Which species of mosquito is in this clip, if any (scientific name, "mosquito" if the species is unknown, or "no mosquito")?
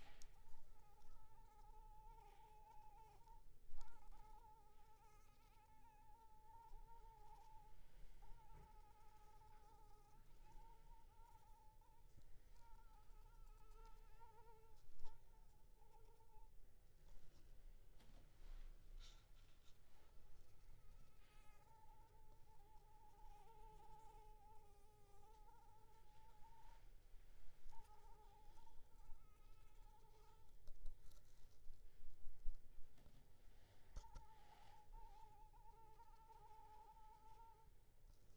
Anopheles arabiensis